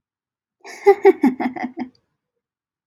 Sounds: Laughter